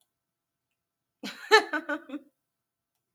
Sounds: Laughter